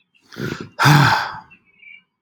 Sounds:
Sigh